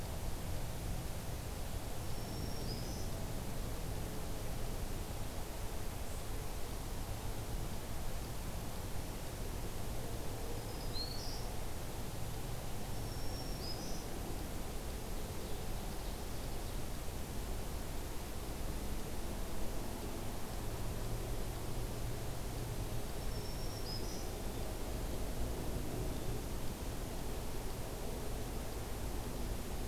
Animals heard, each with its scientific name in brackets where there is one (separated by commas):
Black-throated Green Warbler (Setophaga virens), Ovenbird (Seiurus aurocapilla)